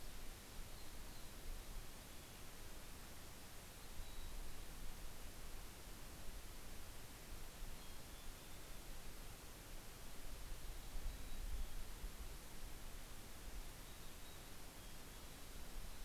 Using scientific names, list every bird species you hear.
Poecile gambeli